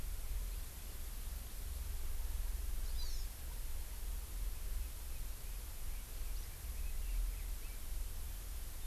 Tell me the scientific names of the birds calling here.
Chlorodrepanis virens, Leiothrix lutea